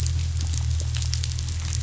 {"label": "anthrophony, boat engine", "recorder": "SoundTrap 500"}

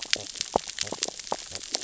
{"label": "biophony, sea urchins (Echinidae)", "recorder": "SoundTrap 600 or HydroMoth"}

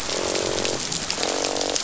{"label": "biophony, croak", "recorder": "SoundTrap 500"}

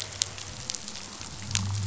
{"label": "anthrophony, boat engine", "recorder": "SoundTrap 500"}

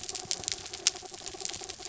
{"label": "anthrophony, mechanical", "recorder": "SoundTrap 300"}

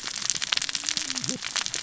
{"label": "biophony, cascading saw", "recorder": "SoundTrap 600 or HydroMoth"}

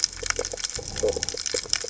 {"label": "biophony", "recorder": "HydroMoth"}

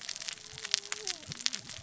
{"label": "biophony, cascading saw", "recorder": "SoundTrap 600 or HydroMoth"}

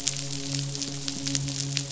{"label": "biophony, midshipman", "recorder": "SoundTrap 500"}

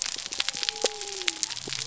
{"label": "biophony", "recorder": "SoundTrap 300"}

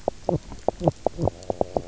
{"label": "biophony, knock croak", "recorder": "SoundTrap 300"}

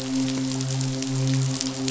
{"label": "biophony, midshipman", "recorder": "SoundTrap 500"}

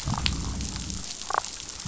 {"label": "biophony, damselfish", "recorder": "SoundTrap 500"}
{"label": "biophony", "recorder": "SoundTrap 500"}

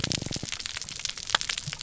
{"label": "biophony", "recorder": "SoundTrap 300"}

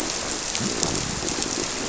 {"label": "biophony", "recorder": "SoundTrap 300"}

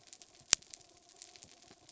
{"label": "anthrophony, mechanical", "recorder": "SoundTrap 300"}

